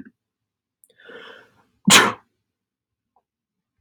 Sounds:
Sneeze